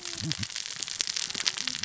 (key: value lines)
label: biophony, cascading saw
recorder: SoundTrap 600 or HydroMoth